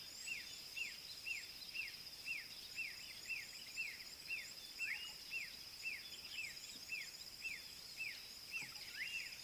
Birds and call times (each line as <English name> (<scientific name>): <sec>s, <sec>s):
Black-backed Puffback (Dryoscopus cubla): 6.9s